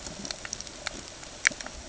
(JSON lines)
{"label": "ambient", "recorder": "HydroMoth"}